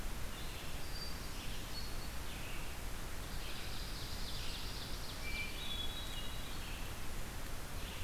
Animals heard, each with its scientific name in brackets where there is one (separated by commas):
Blackburnian Warbler (Setophaga fusca), Red-eyed Vireo (Vireo olivaceus), Hermit Thrush (Catharus guttatus), Ovenbird (Seiurus aurocapilla)